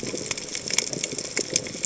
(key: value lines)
label: biophony
recorder: HydroMoth